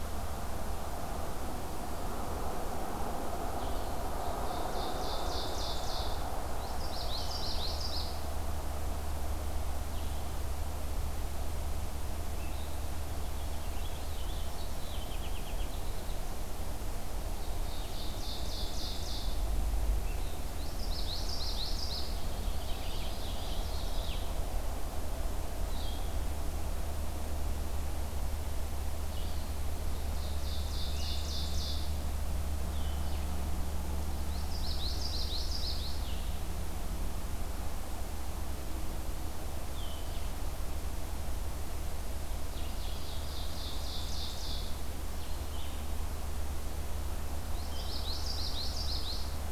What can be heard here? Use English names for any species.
Blue-headed Vireo, Ovenbird, Common Yellowthroat, Purple Finch